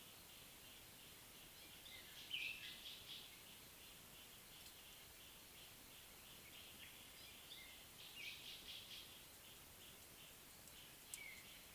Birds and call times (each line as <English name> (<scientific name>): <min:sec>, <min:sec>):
Gray-backed Camaroptera (Camaroptera brevicaudata): 0:08.6